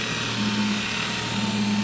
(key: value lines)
label: anthrophony, boat engine
recorder: SoundTrap 500